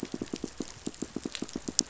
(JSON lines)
{"label": "biophony, pulse", "recorder": "SoundTrap 500"}